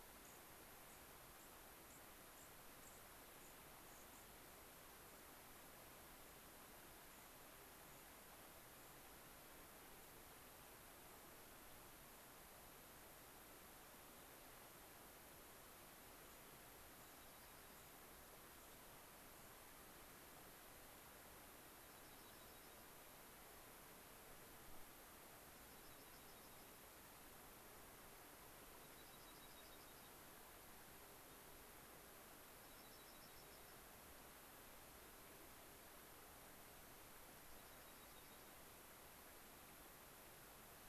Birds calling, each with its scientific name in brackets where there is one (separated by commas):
unidentified bird, Dark-eyed Junco (Junco hyemalis)